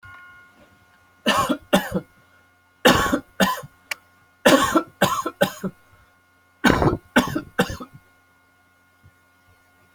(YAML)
expert_labels:
- quality: good
  cough_type: wet
  dyspnea: false
  wheezing: false
  stridor: false
  choking: false
  congestion: false
  nothing: true
  diagnosis: upper respiratory tract infection
  severity: mild
age: 39
gender: male
respiratory_condition: false
fever_muscle_pain: false
status: healthy